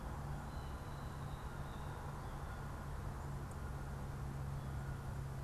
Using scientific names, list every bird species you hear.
Cyanocitta cristata